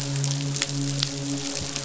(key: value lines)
label: biophony, midshipman
recorder: SoundTrap 500